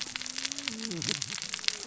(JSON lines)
{"label": "biophony, cascading saw", "recorder": "SoundTrap 600 or HydroMoth"}